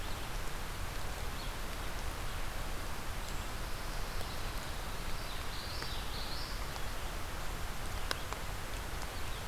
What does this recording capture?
Pine Warbler, Common Yellowthroat